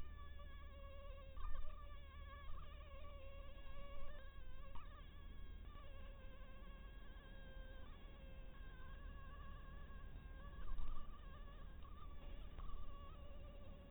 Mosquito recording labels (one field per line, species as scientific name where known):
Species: Anopheles harrisoni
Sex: female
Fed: blood-fed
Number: one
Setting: cup